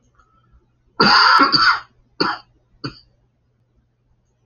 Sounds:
Cough